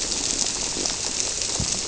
{"label": "biophony", "recorder": "SoundTrap 300"}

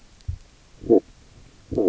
{"label": "biophony, stridulation", "recorder": "SoundTrap 300"}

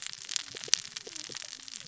{"label": "biophony, cascading saw", "recorder": "SoundTrap 600 or HydroMoth"}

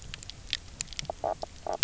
{"label": "biophony, knock croak", "recorder": "SoundTrap 300"}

